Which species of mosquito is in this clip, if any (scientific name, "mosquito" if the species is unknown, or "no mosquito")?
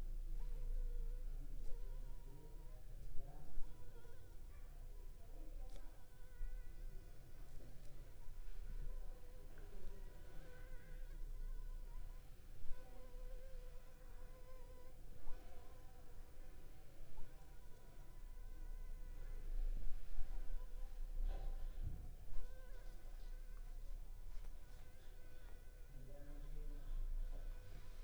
Anopheles funestus s.s.